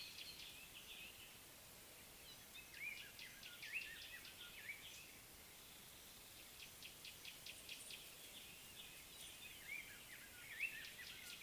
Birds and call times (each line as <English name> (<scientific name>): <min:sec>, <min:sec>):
Gray-backed Camaroptera (Camaroptera brevicaudata): 0:07.3